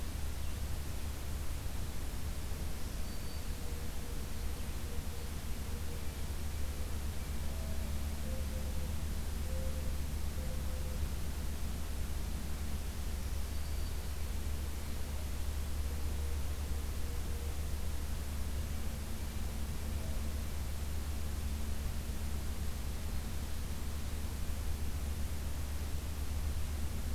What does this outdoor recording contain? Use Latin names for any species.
Setophaga virens, Zenaida macroura